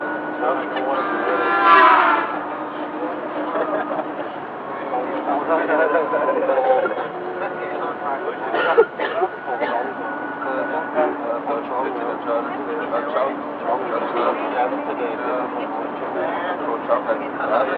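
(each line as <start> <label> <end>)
0.0 People talking, an engine running, vehicle horns, and street noise inside a moving bus. 17.7
1.5 A vehicle horn passes by with a Doppler shift. 2.4
5.0 Casual conversation and background chatter. 7.2
8.5 A woman sneezes loudly three times with short gaps. 10.3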